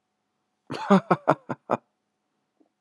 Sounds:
Laughter